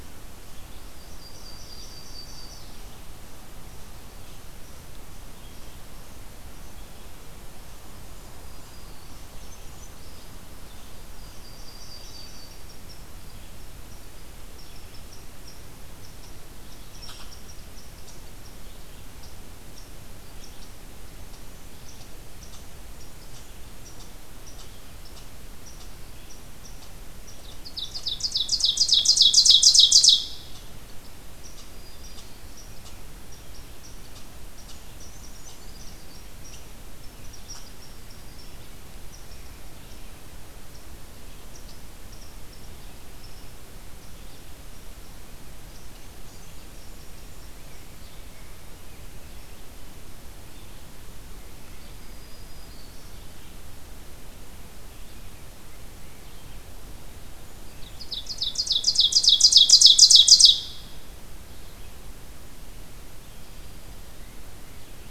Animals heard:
Black-throated Green Warbler (Setophaga virens)
Ovenbird (Seiurus aurocapilla)
Yellow-rumped Warbler (Setophaga coronata)
Red-eyed Vireo (Vireo olivaceus)
unknown mammal

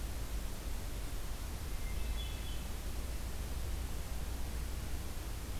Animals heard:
Hermit Thrush (Catharus guttatus)

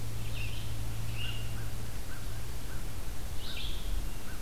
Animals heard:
Hermit Thrush (Catharus guttatus)
American Crow (Corvus brachyrhynchos)
Red-eyed Vireo (Vireo olivaceus)

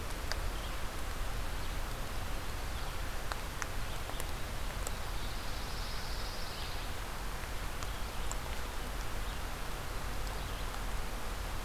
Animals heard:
Pine Warbler (Setophaga pinus)

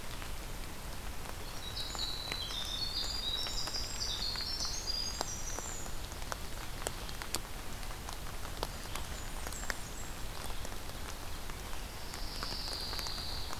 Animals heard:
Winter Wren (Troglodytes hiemalis)
Blackburnian Warbler (Setophaga fusca)
Pine Warbler (Setophaga pinus)

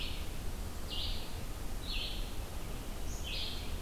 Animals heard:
Red-eyed Vireo (Vireo olivaceus)
Black-capped Chickadee (Poecile atricapillus)

